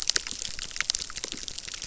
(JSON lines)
{"label": "biophony, crackle", "recorder": "SoundTrap 600"}